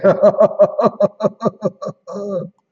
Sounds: Laughter